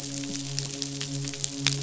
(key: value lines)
label: biophony, midshipman
recorder: SoundTrap 500